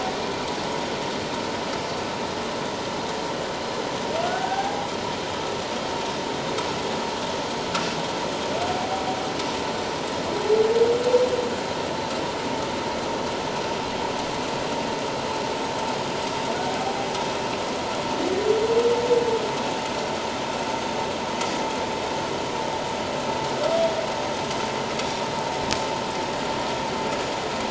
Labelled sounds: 4.2	4.9	humpback whale, 0.78 to 1.7 kHz
16.8	17.1	humpback whale, 0.78 to 0.84 kHz

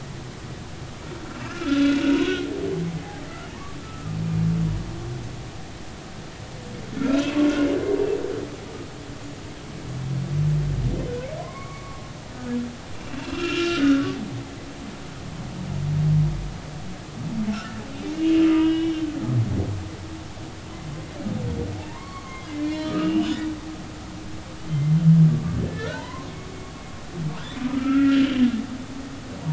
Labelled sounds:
1.4	2.4	humpback whale, 1.2 to 2.9 kHz
3.5	4.2	humpback whale, 0.86 to 1.4 kHz
6.9	7.4	humpback whale, 1.3 to 2.7 kHz
11.4	12.0	humpback whale, 0.99 to 2.3 kHz
12.9	14.1	humpback whale, 1.2 to 3.3 kHz
18.1	19.0	humpback whale, 1.2 to 3.0 kHz
21.8	23.5	humpback whale, 0.80 to 4.1 kHz
24.7	25.0	humpback whale, 2.0 to 2.1 kHz
25.3	26.3	humpback whale, 0.83 to 4.2 kHz
27.7	28.4	humpback whale, 1.2 to 3.2 kHz

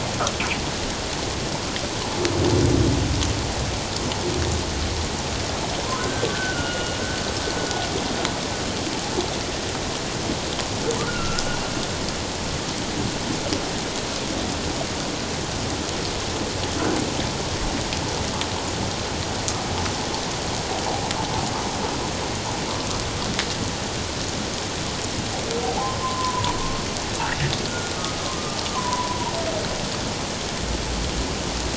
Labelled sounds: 5.8	7.0	humpback whale, 0.94 to 2.9 kHz
11.1	11.4	humpback whale, 1.2 to 2.9 kHz
25.6	26.5	humpback whale, 0.78 to 1.1 kHz
27.7	29.3	humpback whale, 0.88 to 1.5 kHz

